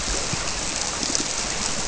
{"label": "biophony", "recorder": "SoundTrap 300"}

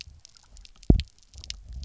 {"label": "biophony, double pulse", "recorder": "SoundTrap 300"}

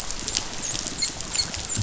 {"label": "biophony, dolphin", "recorder": "SoundTrap 500"}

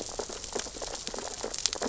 {"label": "biophony, sea urchins (Echinidae)", "recorder": "SoundTrap 600 or HydroMoth"}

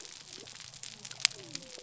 {"label": "biophony", "recorder": "SoundTrap 300"}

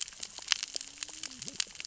{"label": "biophony, cascading saw", "recorder": "SoundTrap 600 or HydroMoth"}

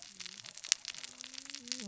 {"label": "biophony, cascading saw", "recorder": "SoundTrap 600 or HydroMoth"}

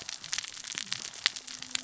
{"label": "biophony, cascading saw", "recorder": "SoundTrap 600 or HydroMoth"}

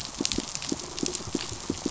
{"label": "biophony, pulse", "recorder": "SoundTrap 500"}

